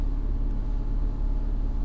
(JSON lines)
{"label": "anthrophony, boat engine", "recorder": "SoundTrap 300"}